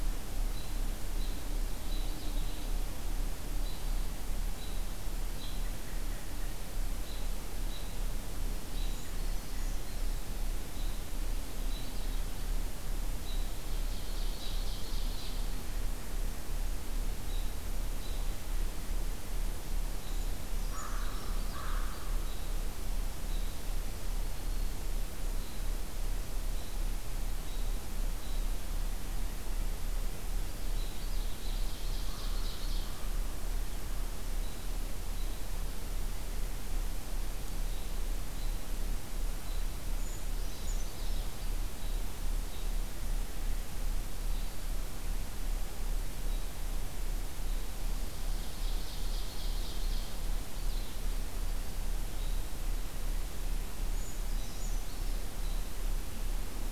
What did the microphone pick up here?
American Robin, Purple Finch, Brown Creeper, Ovenbird, American Crow, Black-throated Green Warbler